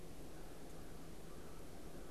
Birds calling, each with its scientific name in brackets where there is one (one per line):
unidentified bird